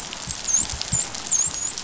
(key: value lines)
label: biophony, dolphin
recorder: SoundTrap 500